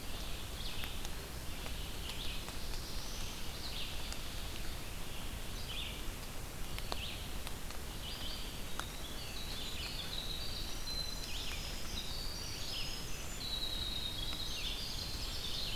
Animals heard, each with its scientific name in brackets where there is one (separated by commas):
Ovenbird (Seiurus aurocapilla), Red-eyed Vireo (Vireo olivaceus), Winter Wren (Troglodytes hiemalis), Black-throated Blue Warbler (Setophaga caerulescens), Eastern Wood-Pewee (Contopus virens)